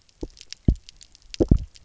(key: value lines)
label: biophony, double pulse
recorder: SoundTrap 300